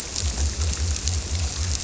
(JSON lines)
{"label": "biophony", "recorder": "SoundTrap 300"}